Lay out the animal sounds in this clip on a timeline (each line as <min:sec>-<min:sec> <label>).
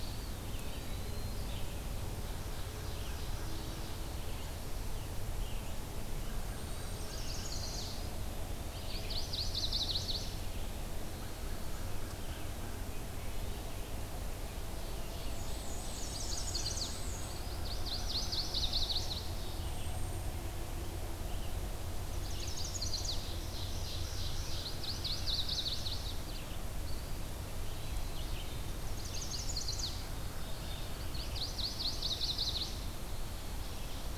0:00.0-0:01.4 Eastern Wood-Pewee (Contopus virens)
0:00.0-0:34.2 Red-eyed Vireo (Vireo olivaceus)
0:01.8-0:03.9 Ovenbird (Seiurus aurocapilla)
0:06.2-0:07.1 Golden-crowned Kinglet (Regulus satrapa)
0:06.5-0:07.1 Hermit Thrush (Catharus guttatus)
0:06.9-0:08.0 Chestnut-sided Warbler (Setophaga pensylvanica)
0:08.7-0:10.4 Chestnut-sided Warbler (Setophaga pensylvanica)
0:10.8-0:11.7 Eastern Wood-Pewee (Contopus virens)
0:13.2-0:13.7 Hermit Thrush (Catharus guttatus)
0:14.5-0:16.4 Ovenbird (Seiurus aurocapilla)
0:15.2-0:17.5 Black-and-white Warbler (Mniotilta varia)
0:16.1-0:19.3 Chestnut-sided Warbler (Setophaga pensylvanica)
0:19.5-0:20.4 Golden-crowned Kinglet (Regulus satrapa)
0:22.1-0:23.2 Chestnut-sided Warbler (Setophaga pensylvanica)
0:23.1-0:24.9 Ovenbird (Seiurus aurocapilla)
0:24.7-0:26.2 Chestnut-sided Warbler (Setophaga pensylvanica)
0:26.7-0:28.3 Eastern Wood-Pewee (Contopus virens)
0:28.9-0:30.0 Chestnut-sided Warbler (Setophaga pensylvanica)
0:30.0-0:31.5 Mourning Warbler (Geothlypis philadelphia)
0:31.1-0:32.8 Chestnut-sided Warbler (Setophaga pensylvanica)